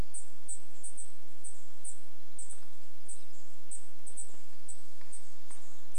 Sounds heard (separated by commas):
bird wingbeats, woodpecker drumming, Dark-eyed Junco call, warbler song